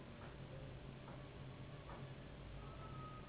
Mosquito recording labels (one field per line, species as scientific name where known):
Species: Anopheles gambiae s.s.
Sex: female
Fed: unfed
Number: one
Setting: insect culture